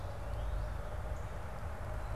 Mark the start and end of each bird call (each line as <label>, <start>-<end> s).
unidentified bird, 0.3-0.6 s